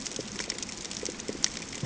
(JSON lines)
{"label": "ambient", "recorder": "HydroMoth"}